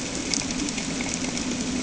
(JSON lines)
{"label": "anthrophony, boat engine", "recorder": "HydroMoth"}